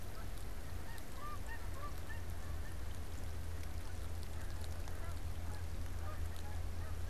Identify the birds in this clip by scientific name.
Branta canadensis, Anser caerulescens